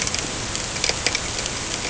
{"label": "ambient", "recorder": "HydroMoth"}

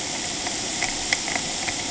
{"label": "ambient", "recorder": "HydroMoth"}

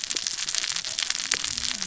{"label": "biophony, cascading saw", "recorder": "SoundTrap 600 or HydroMoth"}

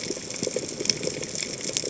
{"label": "biophony, chatter", "recorder": "HydroMoth"}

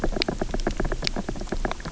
{"label": "biophony, knock", "recorder": "SoundTrap 300"}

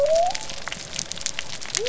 {"label": "biophony", "recorder": "SoundTrap 300"}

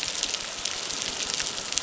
{"label": "biophony, crackle", "recorder": "SoundTrap 600"}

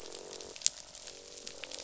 {"label": "biophony, croak", "recorder": "SoundTrap 500"}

